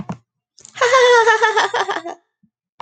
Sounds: Laughter